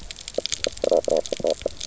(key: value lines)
label: biophony, knock croak
recorder: SoundTrap 300